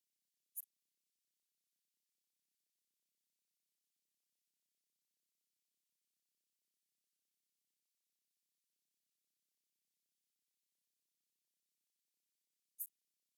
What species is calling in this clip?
Steropleurus andalusius